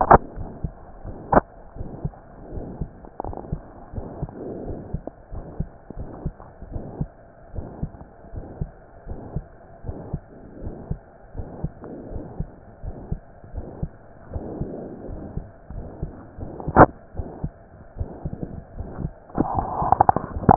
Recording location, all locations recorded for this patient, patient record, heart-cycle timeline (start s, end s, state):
aortic valve (AV)
aortic valve (AV)+pulmonary valve (PV)+tricuspid valve (TV)+mitral valve (MV)
#Age: Child
#Sex: Female
#Height: 128.0 cm
#Weight: 24.3 kg
#Pregnancy status: False
#Murmur: Present
#Murmur locations: aortic valve (AV)+mitral valve (MV)+pulmonary valve (PV)+tricuspid valve (TV)
#Most audible location: tricuspid valve (TV)
#Systolic murmur timing: Holosystolic
#Systolic murmur shape: Plateau
#Systolic murmur grading: III/VI or higher
#Systolic murmur pitch: High
#Systolic murmur quality: Blowing
#Diastolic murmur timing: nan
#Diastolic murmur shape: nan
#Diastolic murmur grading: nan
#Diastolic murmur pitch: nan
#Diastolic murmur quality: nan
#Outcome: Normal
#Campaign: 2015 screening campaign
0.00	1.78	unannotated
1.78	1.92	S1
1.92	2.02	systole
2.02	2.14	S2
2.14	2.52	diastole
2.52	2.64	S1
2.64	2.78	systole
2.78	2.90	S2
2.90	3.24	diastole
3.24	3.38	S1
3.38	3.50	systole
3.50	3.60	S2
3.60	3.96	diastole
3.96	4.06	S1
4.06	4.18	systole
4.18	4.30	S2
4.30	4.66	diastole
4.66	4.78	S1
4.78	4.92	systole
4.92	5.00	S2
5.00	5.32	diastole
5.32	5.46	S1
5.46	5.58	systole
5.58	5.68	S2
5.68	5.97	diastole
5.97	6.10	S1
6.10	6.22	systole
6.22	6.34	S2
6.34	6.70	diastole
6.70	6.84	S1
6.84	6.98	systole
6.98	7.10	S2
7.10	7.54	diastole
7.54	7.66	S1
7.66	7.80	systole
7.80	7.92	S2
7.92	8.34	diastole
8.34	8.46	S1
8.46	8.58	systole
8.58	8.70	S2
8.70	9.05	diastole
9.05	9.18	S1
9.18	9.34	systole
9.34	9.44	S2
9.44	9.84	diastole
9.84	9.96	S1
9.96	10.10	systole
10.10	10.22	S2
10.22	10.60	diastole
10.60	10.74	S1
10.74	10.86	systole
10.86	11.00	S2
11.00	11.34	diastole
11.34	11.48	S1
11.48	11.62	systole
11.62	11.72	S2
11.72	12.10	diastole
12.10	12.24	S1
12.24	12.38	systole
12.38	12.50	S2
12.50	12.82	diastole
12.82	12.96	S1
12.96	13.08	systole
13.08	13.22	S2
13.22	13.54	diastole
13.54	13.66	S1
13.66	13.80	systole
13.80	13.92	S2
13.92	14.32	diastole
14.32	14.44	S1
14.44	14.56	systole
14.56	14.70	S2
14.70	15.06	diastole
15.06	15.20	S1
15.20	15.34	systole
15.34	15.44	S2
15.44	15.73	diastole
15.73	15.90	S1
15.90	16.00	systole
16.00	16.10	S2
16.10	16.38	diastole
16.38	16.50	S1
16.50	16.65	systole
16.65	16.73	S2
16.73	17.16	unannotated
17.16	17.24	S1
17.24	17.42	systole
17.42	17.52	S2
17.52	17.98	diastole
17.98	18.12	S1
18.12	18.24	systole
18.24	18.34	S2
18.34	18.76	diastole
18.76	18.90	S1
18.90	19.00	systole
19.00	19.14	S2
19.14	20.56	unannotated